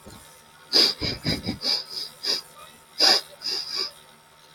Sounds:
Sniff